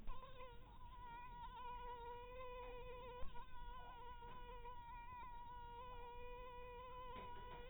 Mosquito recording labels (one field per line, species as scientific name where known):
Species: mosquito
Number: one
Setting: cup